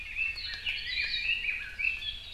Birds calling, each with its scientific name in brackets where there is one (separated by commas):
Red-billed Leiothrix (Leiothrix lutea), Hawaii Akepa (Loxops coccineus)